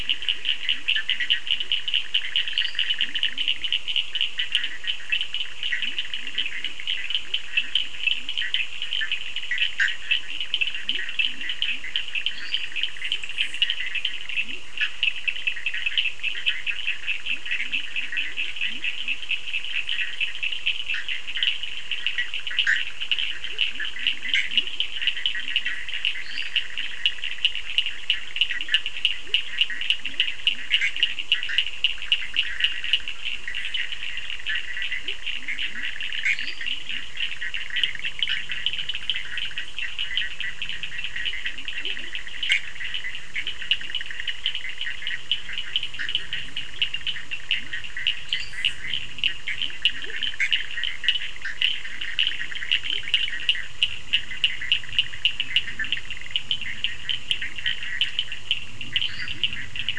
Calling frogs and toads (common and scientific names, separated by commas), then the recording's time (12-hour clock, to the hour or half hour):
Leptodactylus latrans, Bischoff's tree frog (Boana bischoffi), Cochran's lime tree frog (Sphaenorhynchus surdus), lesser tree frog (Dendropsophus minutus)
9:30pm